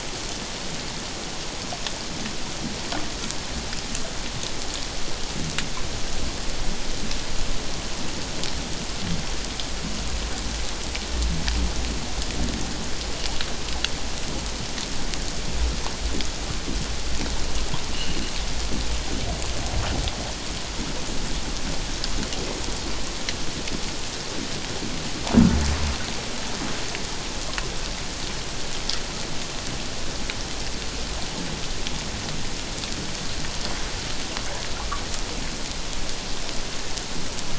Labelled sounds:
17.9	18.2	metallic clang, 2.7 to 3.0 kHz

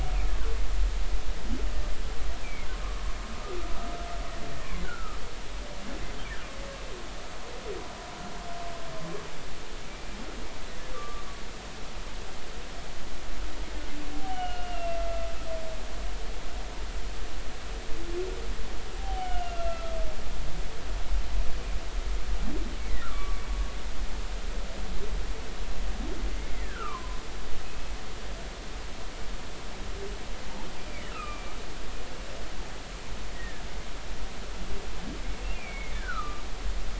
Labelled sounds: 2.4	2.7	humpback whale, 2.1 to 2.6 kHz
4.6	5.2	humpback whale, 1.2 to 2.5 kHz
9.9	10.2	humpback whale, 2.3 to 2.4 kHz
10.9	11.2	humpback whale, 1.1 to 1.4 kHz
14.1	15.3	humpback whale, 0.80 to 3.0 kHz
19.0	19.9	humpback whale, 0.80 to 3.2 kHz
22.8	23.4	humpback whale, 1.1 to 2.3 kHz
26.6	27.9	humpback whale, 0.93 to 2.6 kHz
30.8	31.5	humpback whale, 1.1 to 2.6 kHz
33.3	33.6	humpback whale, 1.6 to 2.0 kHz
35.5	36.4	humpback whale, 1.1 to 2.5 kHz

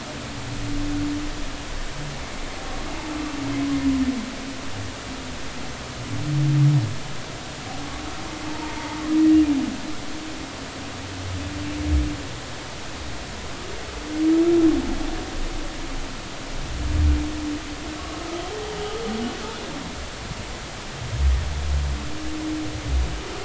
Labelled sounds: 8.5	9.0	humpback whale, 0.83 to 0.99 kHz

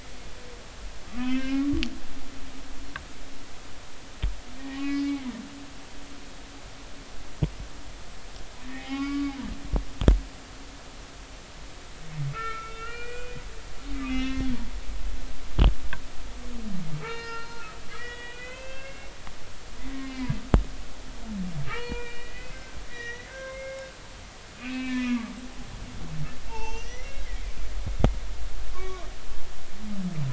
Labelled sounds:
1.0	1.8	humpback whale, 1.1 to 3.2 kHz
4.6	5.3	humpback whale, 1.1 to 4.8 kHz
8.7	9.3	humpback whale, 0.80 to 4.6 kHz
12.3	13.4	humpback whale, 1.2 to 2.9 kHz
14.0	14.5	humpback whale, 1.5 to 4.0 kHz
16.9	19.1	humpback whale, 0.83 to 6.8 kHz
20.0	20.3	humpback whale, 2.0 to 2.2 kHz
21.7	23.8	humpback whale, 0.83 to 6.0 kHz
24.6	27.2	humpback whale, 0.80 to 6.1 kHz
27.5	29.1	humpback whale, 0.99 to 5.5 kHz

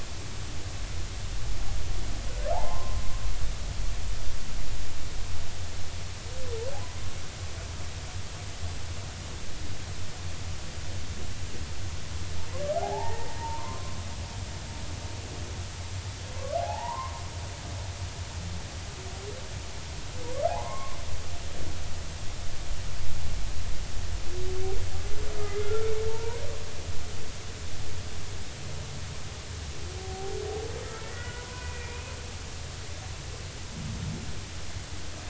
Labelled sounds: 2.5	3.0	humpback whale, 0.80 to 1.1 kHz
12.7	14.0	humpback whale, 0.80 to 2.0 kHz
16.5	17.1	humpback whale, 0.80 to 1.2 kHz
20.5	21.0	humpback whale, 0.80 to 2.3 kHz
25.6	26.4	humpback whale, 0.86 to 1.4 kHz
30.0	32.2	humpback whale, 0.80 to 2.6 kHz

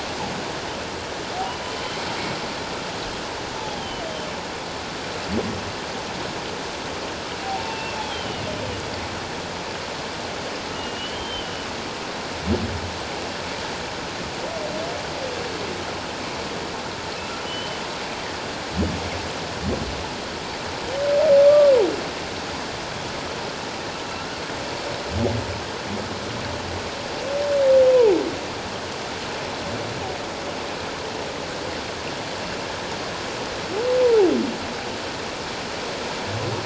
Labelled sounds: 3.8	4.0	humpback whale, 2.9 to 3.2 kHz
7.4	8.4	humpback whale, 0.78 to 3.4 kHz
10.7	11.7	humpback whale, 2.8 to 3.2 kHz
17.4	17.8	humpback whale, 2.9 to 3.1 kHz
21.5	21.7	humpback whale, 1.1 to 1.2 kHz
34.0	34.3	humpback whale, 0.78 to 1.0 kHz

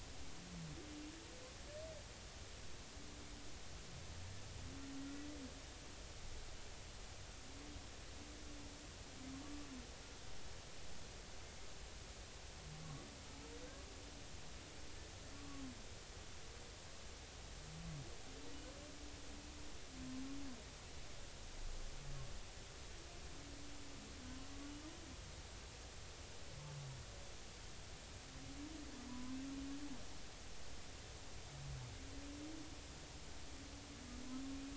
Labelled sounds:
9.4	9.7	humpback whale, 1.1 to 1.2 kHz
15.4	15.6	humpback whale, 1.1 to 1.2 kHz
29.1	29.4	humpback whale, 0.93 to 1.1 kHz

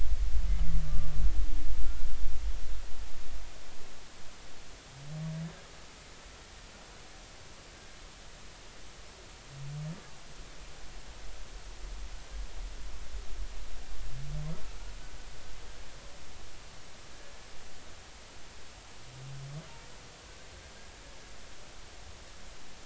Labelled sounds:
0.8	1.1	humpback whale, 1.15 to 1.25 kHz
1.8	2.1	humpback whale, 1.3 to 1.5 kHz

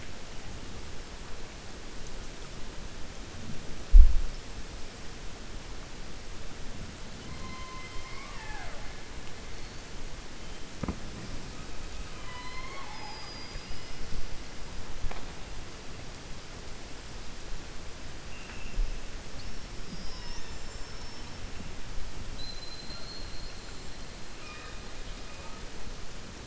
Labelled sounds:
12.0	14.0	killer whale, 0.80 to 5.2 kHz

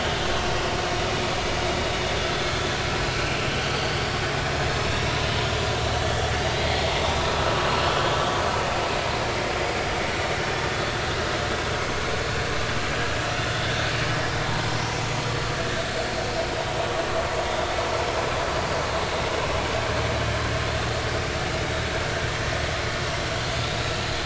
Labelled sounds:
3.6	4.0	vessel noise, 4.3 to 4.8 kHz
6.0	6.3	vessel noise, 3.2 to 3.5 kHz
13.4	13.6	vessel noise, 3.5 to 3.6 kHz

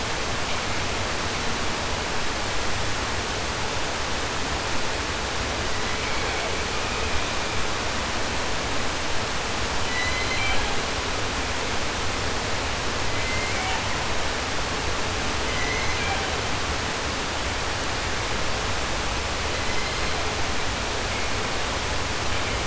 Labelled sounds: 5.6	6.6	killer whale, southern resident, 0.08 to 4.5 kHz
9.7	10.9	killer whale, southern resident, J pod, call S01, 0.10 to 8.0 kHz
12.9	14.1	killer whale, southern resident, J pod, call S01, 0.10 to 7.5 kHz
15.4	16.5	killer whale, southern resident, J pod, call S01, 0.10 to 6.9 kHz
19.3	20.5	killer whale, southern resident, J pod, call S01, 0.31 to 6.8 kHz

